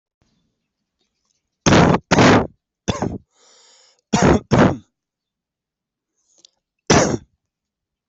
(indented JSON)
{
  "expert_labels": [
    {
      "quality": "good",
      "cough_type": "dry",
      "dyspnea": false,
      "wheezing": false,
      "stridor": false,
      "choking": false,
      "congestion": false,
      "nothing": true,
      "diagnosis": "upper respiratory tract infection",
      "severity": "mild"
    }
  ],
  "age": 20,
  "gender": "male",
  "respiratory_condition": false,
  "fever_muscle_pain": false,
  "status": "symptomatic"
}